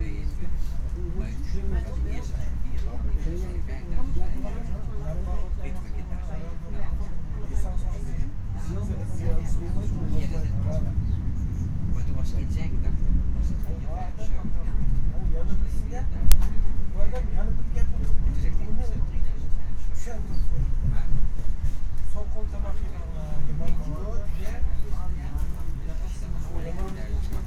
Is a snake hissing?
no